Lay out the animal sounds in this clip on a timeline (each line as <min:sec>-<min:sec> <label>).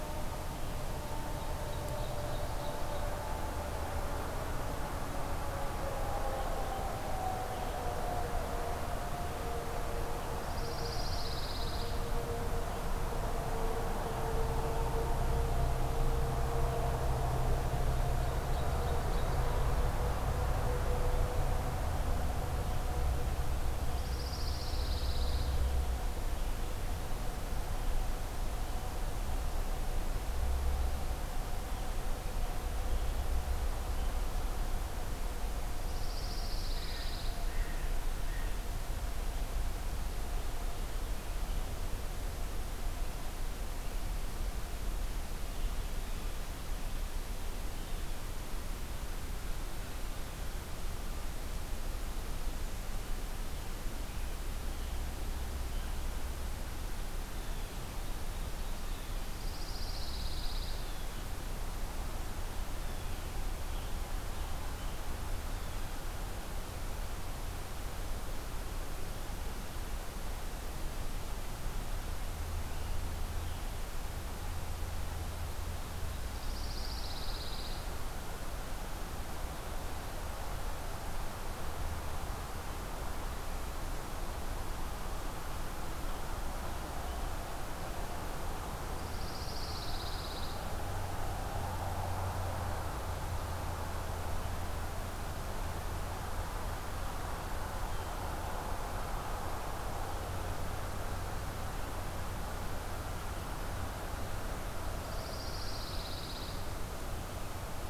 0:00.6-0:03.3 Ovenbird (Seiurus aurocapilla)
0:10.3-0:11.9 Pine Warbler (Setophaga pinus)
0:18.1-0:19.7 Ovenbird (Seiurus aurocapilla)
0:23.8-0:25.5 Pine Warbler (Setophaga pinus)
0:35.7-0:37.4 Pine Warbler (Setophaga pinus)
0:36.8-0:38.7 Blue Jay (Cyanocitta cristata)
0:57.2-0:58.0 Blue Jay (Cyanocitta cristata)
0:58.8-0:59.5 Blue Jay (Cyanocitta cristata)
0:59.1-1:00.9 Pine Warbler (Setophaga pinus)
1:00.6-1:01.3 Blue Jay (Cyanocitta cristata)
1:02.7-1:03.3 Blue Jay (Cyanocitta cristata)
1:05.3-1:06.1 Blue Jay (Cyanocitta cristata)
1:16.3-1:18.0 Pine Warbler (Setophaga pinus)
1:29.0-1:30.6 Pine Warbler (Setophaga pinus)
1:45.0-1:46.8 Pine Warbler (Setophaga pinus)